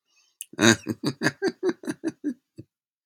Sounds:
Laughter